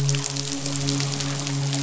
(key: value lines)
label: biophony, midshipman
recorder: SoundTrap 500